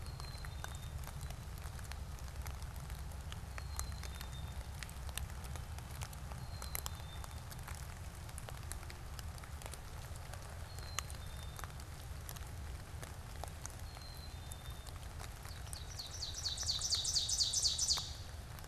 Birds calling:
Ovenbird (Seiurus aurocapilla), Black-capped Chickadee (Poecile atricapillus)

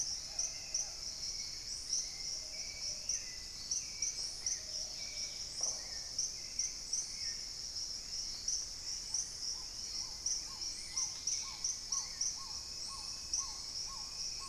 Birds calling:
Plumbeous Pigeon (Patagioenas plumbea), Black-tailed Trogon (Trogon melanurus), Paradise Tanager (Tangara chilensis), Red-necked Woodpecker (Campephilus rubricollis), Dusky-capped Greenlet (Pachysylvia hypoxantha), Hauxwell's Thrush (Turdus hauxwelli)

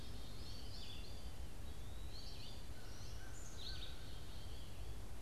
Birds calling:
American Crow (Corvus brachyrhynchos), American Goldfinch (Spinus tristis), Eastern Wood-Pewee (Contopus virens), Black-capped Chickadee (Poecile atricapillus)

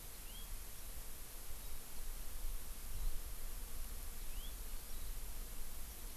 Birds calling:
Warbling White-eye (Zosterops japonicus), House Finch (Haemorhous mexicanus)

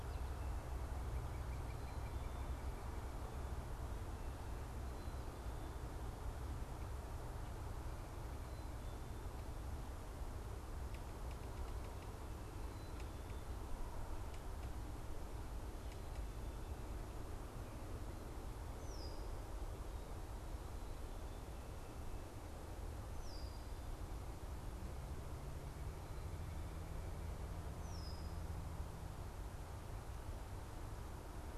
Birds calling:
Red-winged Blackbird (Agelaius phoeniceus), unidentified bird

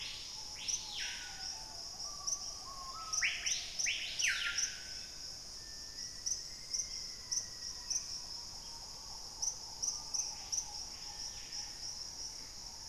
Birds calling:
Hauxwell's Thrush (Turdus hauxwelli), White-crested Spadebill (Platyrinchus platyrhynchos), Black-faced Antthrush (Formicarius analis), Screaming Piha (Lipaugus vociferans), Gray Antbird (Cercomacra cinerascens)

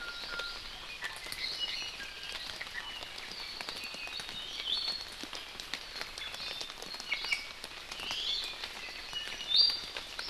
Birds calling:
Iiwi (Drepanis coccinea)

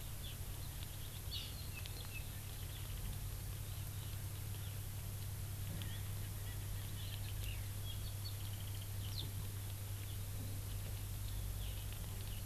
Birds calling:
Hawaii Amakihi (Chlorodrepanis virens), Erckel's Francolin (Pternistis erckelii)

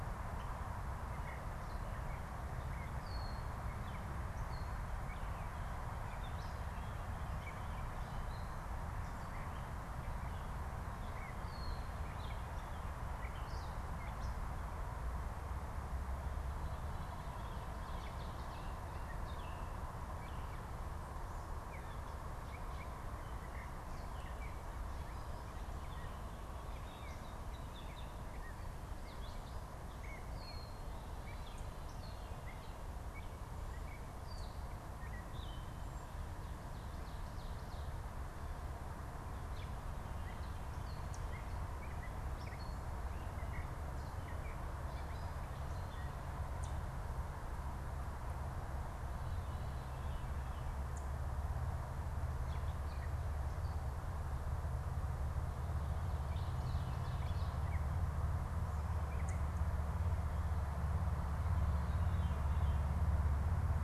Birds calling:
unidentified bird, Gray Catbird (Dumetella carolinensis), Veery (Catharus fuscescens)

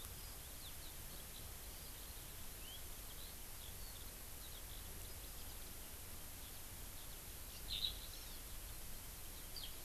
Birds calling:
Hawaii Amakihi (Chlorodrepanis virens), Eurasian Skylark (Alauda arvensis)

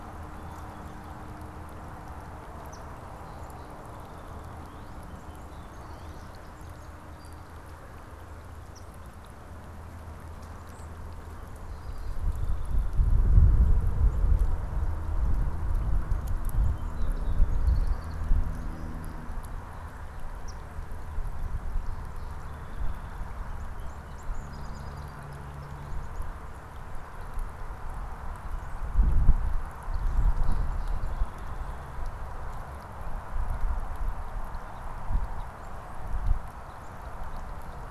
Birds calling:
Eastern Phoebe (Sayornis phoebe), Song Sparrow (Melospiza melodia), Northern Cardinal (Cardinalis cardinalis)

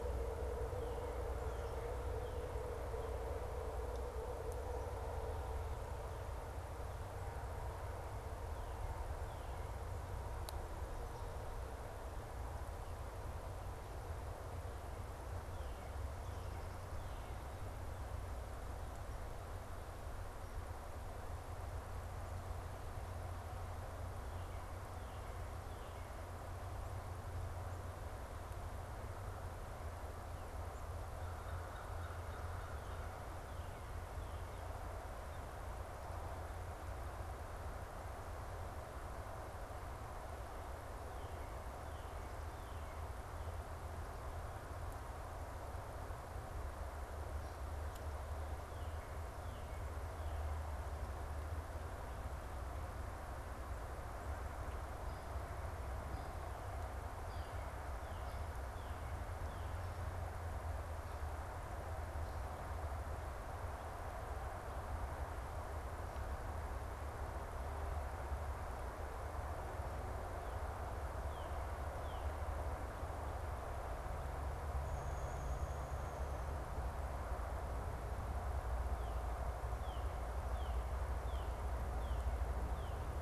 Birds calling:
American Crow (Corvus brachyrhynchos), Downy Woodpecker (Dryobates pubescens), Northern Cardinal (Cardinalis cardinalis)

